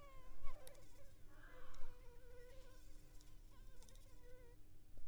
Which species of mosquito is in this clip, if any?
Anopheles arabiensis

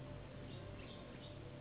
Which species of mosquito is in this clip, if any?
Anopheles gambiae s.s.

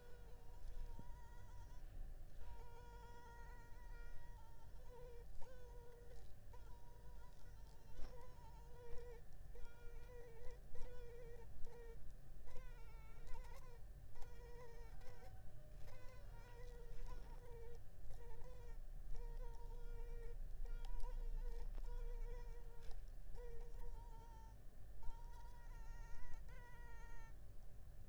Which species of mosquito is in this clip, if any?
Culex pipiens complex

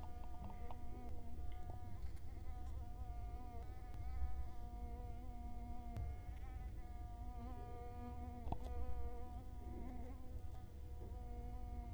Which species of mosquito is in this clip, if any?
Culex quinquefasciatus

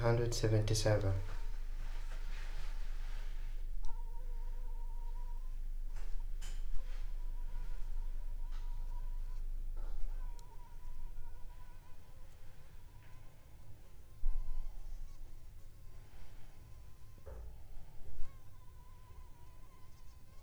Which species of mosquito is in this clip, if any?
Anopheles funestus s.s.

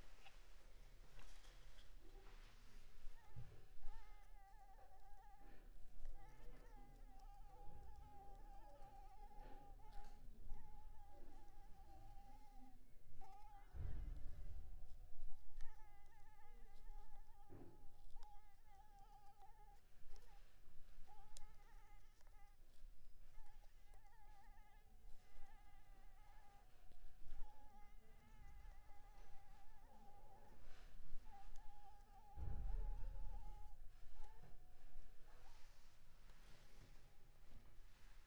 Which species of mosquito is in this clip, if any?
Anopheles maculipalpis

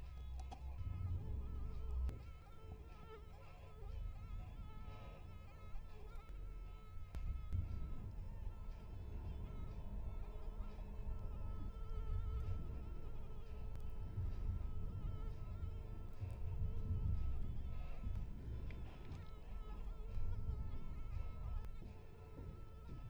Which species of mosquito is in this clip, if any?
Anopheles coluzzii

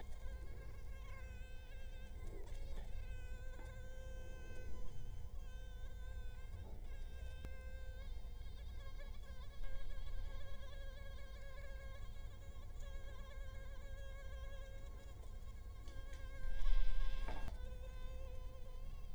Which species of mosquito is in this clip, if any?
Culex quinquefasciatus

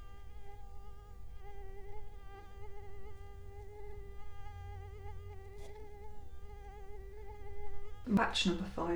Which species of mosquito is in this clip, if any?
Culex quinquefasciatus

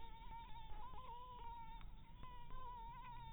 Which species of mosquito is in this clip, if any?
Anopheles dirus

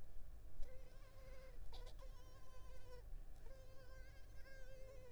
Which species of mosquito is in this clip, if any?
Culex tigripes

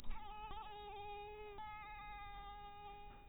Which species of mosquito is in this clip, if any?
mosquito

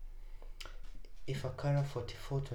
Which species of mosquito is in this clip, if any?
Anopheles funestus s.l.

